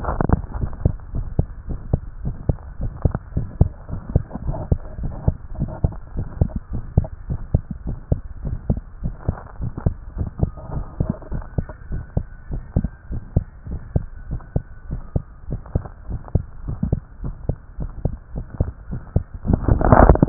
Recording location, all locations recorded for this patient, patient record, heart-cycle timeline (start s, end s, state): tricuspid valve (TV)
aortic valve (AV)+pulmonary valve (PV)+tricuspid valve (TV)+mitral valve (MV)
#Age: Adolescent
#Sex: Female
#Height: 156.0 cm
#Weight: 36.7 kg
#Pregnancy status: False
#Murmur: Absent
#Murmur locations: nan
#Most audible location: nan
#Systolic murmur timing: nan
#Systolic murmur shape: nan
#Systolic murmur grading: nan
#Systolic murmur pitch: nan
#Systolic murmur quality: nan
#Diastolic murmur timing: nan
#Diastolic murmur shape: nan
#Diastolic murmur grading: nan
#Diastolic murmur pitch: nan
#Diastolic murmur quality: nan
#Outcome: Abnormal
#Campaign: 2015 screening campaign
0.00	0.94	unannotated
0.94	1.14	diastole
1.14	1.26	S1
1.26	1.36	systole
1.36	1.46	S2
1.46	1.68	diastole
1.68	1.78	S1
1.78	1.88	systole
1.88	2.02	S2
2.02	2.22	diastole
2.22	2.36	S1
2.36	2.44	systole
2.44	2.58	S2
2.58	2.82	diastole
2.82	2.94	S1
2.94	3.00	systole
3.00	3.14	S2
3.14	3.34	diastole
3.34	3.48	S1
3.48	3.60	systole
3.60	3.74	S2
3.74	3.92	diastole
3.92	4.02	S1
4.02	4.10	systole
4.10	4.24	S2
4.24	4.46	diastole
4.46	4.60	S1
4.60	4.70	systole
4.70	4.80	S2
4.80	5.02	diastole
5.02	5.16	S1
5.16	5.26	systole
5.26	5.36	S2
5.36	5.56	diastole
5.56	5.70	S1
5.70	5.80	systole
5.80	5.92	S2
5.92	6.16	diastole
6.16	6.28	S1
6.28	6.40	systole
6.40	6.52	S2
6.52	6.72	diastole
6.72	6.86	S1
6.86	6.96	systole
6.96	7.08	S2
7.08	7.28	diastole
7.28	7.42	S1
7.42	7.50	systole
7.50	7.64	S2
7.64	7.86	diastole
7.86	7.98	S1
7.98	8.10	systole
8.10	8.22	S2
8.22	8.44	diastole
8.44	8.58	S1
8.58	8.68	systole
8.68	8.82	S2
8.82	9.04	diastole
9.04	9.16	S1
9.16	9.24	systole
9.24	9.36	S2
9.36	9.60	diastole
9.60	9.72	S1
9.72	9.84	systole
9.84	9.94	S2
9.94	10.16	diastole
10.16	10.28	S1
10.28	10.40	systole
10.40	10.52	S2
10.52	10.72	diastole
10.72	10.86	S1
10.86	10.96	systole
10.96	11.08	S2
11.08	11.32	diastole
11.32	11.44	S1
11.44	11.54	systole
11.54	11.68	S2
11.68	11.92	diastole
11.92	12.04	S1
12.04	12.14	systole
12.14	12.26	S2
12.26	12.50	diastole
12.50	12.62	S1
12.62	12.76	systole
12.76	12.90	S2
12.90	13.12	diastole
13.12	13.22	S1
13.22	13.32	systole
13.32	13.46	S2
13.46	13.68	diastole
13.68	13.80	S1
13.80	13.92	systole
13.92	14.06	S2
14.06	14.30	diastole
14.30	14.40	S1
14.40	14.52	systole
14.52	14.62	S2
14.62	14.90	diastole
14.90	15.02	S1
15.02	15.16	systole
15.16	15.26	S2
15.26	15.50	diastole
15.50	15.62	S1
15.62	15.72	systole
15.72	15.86	S2
15.86	16.10	diastole
16.10	16.22	S1
16.22	16.32	systole
16.32	16.46	S2
16.46	16.66	diastole
16.66	16.80	S1
16.80	16.90	systole
16.90	17.04	S2
17.04	17.24	diastole
17.24	17.36	S1
17.36	17.46	systole
17.46	17.56	S2
17.56	17.80	diastole
17.80	17.92	S1
17.92	18.02	systole
18.02	18.12	S2
18.12	18.34	diastole
18.34	18.46	S1
18.46	18.58	systole
18.58	18.70	S2
18.70	18.90	diastole
18.90	19.00	S1
19.00	20.29	unannotated